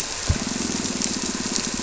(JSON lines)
{"label": "anthrophony, boat engine", "recorder": "SoundTrap 300"}